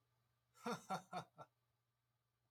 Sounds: Laughter